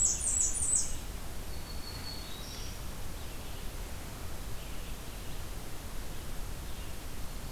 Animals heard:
Black-throated Green Warbler (Setophaga virens), Blackburnian Warbler (Setophaga fusca), Red-eyed Vireo (Vireo olivaceus)

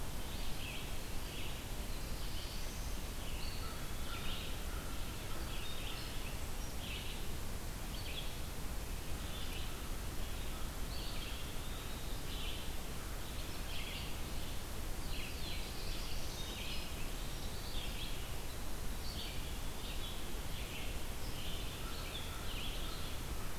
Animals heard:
Black-throated Blue Warbler (Setophaga caerulescens), American Crow (Corvus brachyrhynchos), Eastern Wood-Pewee (Contopus virens), Red-eyed Vireo (Vireo olivaceus)

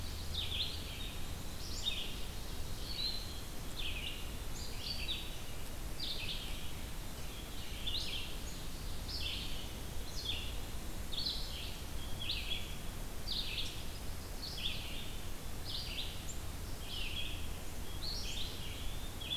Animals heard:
Eastern Wood-Pewee (Contopus virens), Red-eyed Vireo (Vireo olivaceus)

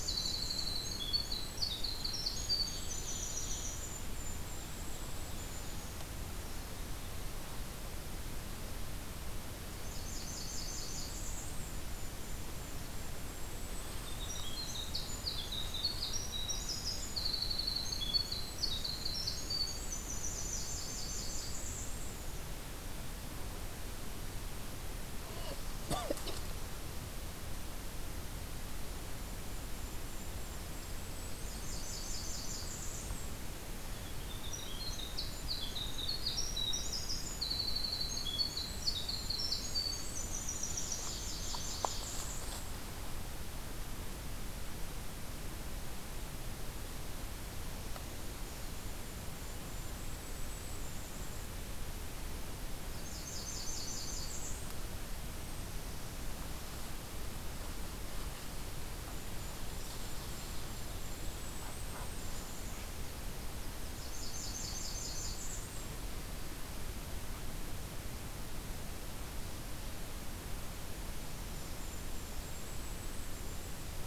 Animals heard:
Winter Wren (Troglodytes hiemalis), Blackburnian Warbler (Setophaga fusca), Ovenbird (Seiurus aurocapilla), Golden-crowned Kinglet (Regulus satrapa)

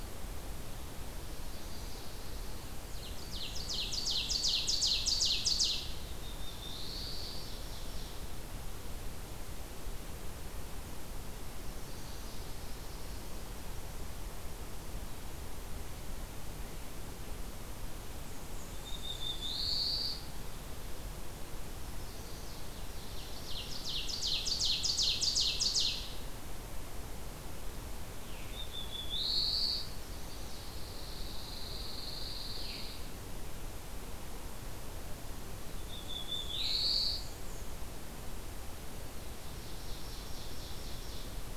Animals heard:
Pine Warbler (Setophaga pinus), Veery (Catharus fuscescens), Chestnut-sided Warbler (Setophaga pensylvanica), Black-throated Blue Warbler (Setophaga caerulescens), Ovenbird (Seiurus aurocapilla), Black-and-white Warbler (Mniotilta varia)

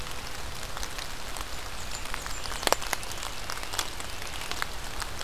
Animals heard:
Blackburnian Warbler (Setophaga fusca), American Robin (Turdus migratorius)

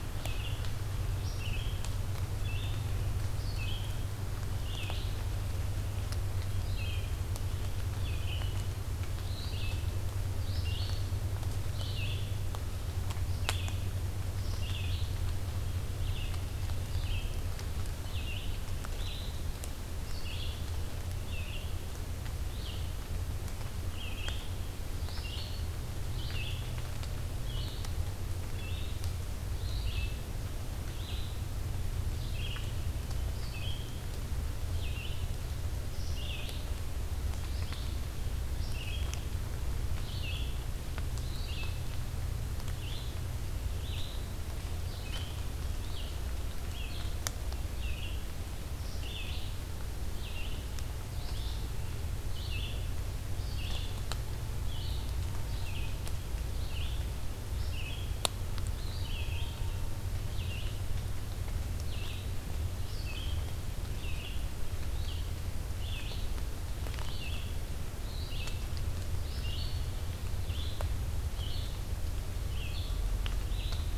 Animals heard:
Red-eyed Vireo (Vireo olivaceus)

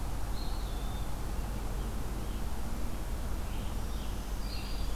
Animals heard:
Eastern Wood-Pewee (Contopus virens), Scarlet Tanager (Piranga olivacea), Red-eyed Vireo (Vireo olivaceus)

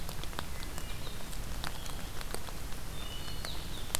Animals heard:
Wood Thrush (Hylocichla mustelina), Blue-headed Vireo (Vireo solitarius)

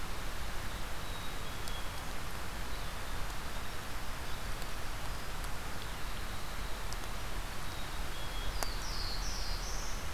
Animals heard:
Black-capped Chickadee (Poecile atricapillus), Winter Wren (Troglodytes hiemalis), Black-throated Blue Warbler (Setophaga caerulescens)

